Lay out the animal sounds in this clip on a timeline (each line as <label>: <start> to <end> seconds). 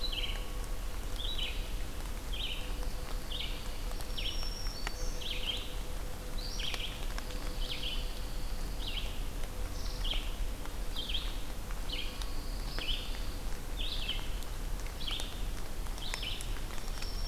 Red-eyed Vireo (Vireo olivaceus): 0.0 to 17.3 seconds
Pine Warbler (Setophaga pinus): 2.6 to 4.3 seconds
Black-throated Green Warbler (Setophaga virens): 3.7 to 5.5 seconds
Pine Warbler (Setophaga pinus): 7.1 to 9.0 seconds
unidentified call: 9.6 to 10.1 seconds
Pine Warbler (Setophaga pinus): 11.8 to 13.5 seconds
Black-throated Green Warbler (Setophaga virens): 16.7 to 17.3 seconds